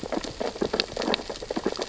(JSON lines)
{"label": "biophony, sea urchins (Echinidae)", "recorder": "SoundTrap 600 or HydroMoth"}